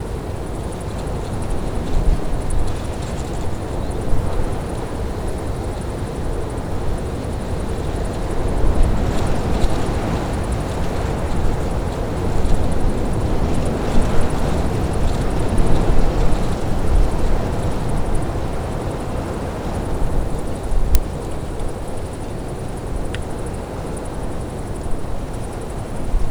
Is it quiet?
no